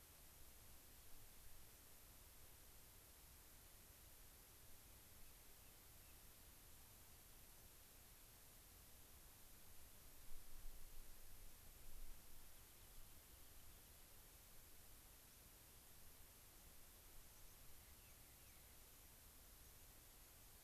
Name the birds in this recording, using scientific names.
Salpinctes obsoletus, Zonotrichia leucophrys, unidentified bird